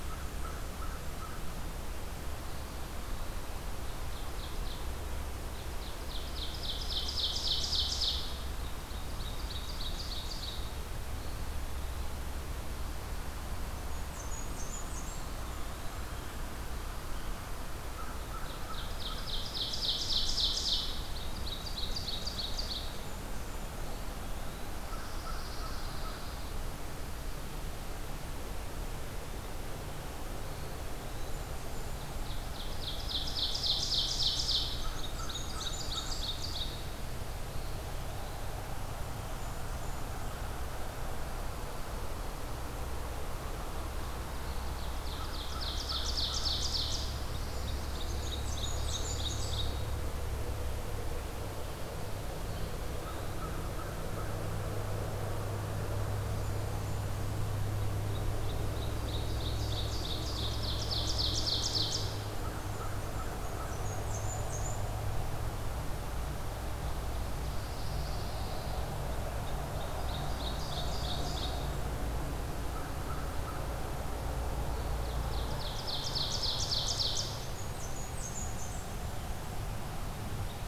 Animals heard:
American Crow (Corvus brachyrhynchos), Eastern Wood-Pewee (Contopus virens), Pine Warbler (Setophaga pinus), Blackburnian Warbler (Setophaga fusca), Ovenbird (Seiurus aurocapilla)

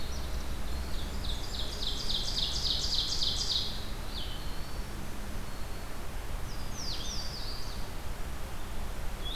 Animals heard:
Louisiana Waterthrush (Parkesia motacilla), Blackburnian Warbler (Setophaga fusca), Blue-headed Vireo (Vireo solitarius), Ovenbird (Seiurus aurocapilla)

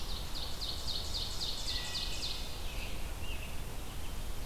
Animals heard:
Red-eyed Vireo (Vireo olivaceus), Ovenbird (Seiurus aurocapilla), Wood Thrush (Hylocichla mustelina), American Robin (Turdus migratorius)

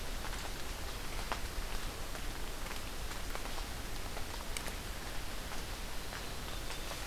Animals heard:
Black-capped Chickadee (Poecile atricapillus)

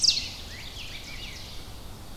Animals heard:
Ovenbird (Seiurus aurocapilla), Rose-breasted Grosbeak (Pheucticus ludovicianus)

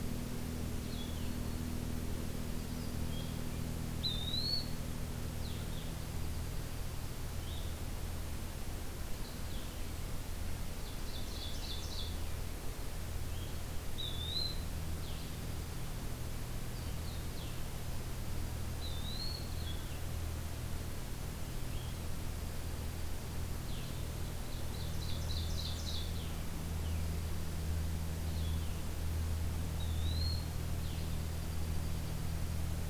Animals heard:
Ovenbird (Seiurus aurocapilla), Dark-eyed Junco (Junco hyemalis), Blue-headed Vireo (Vireo solitarius), Eastern Wood-Pewee (Contopus virens)

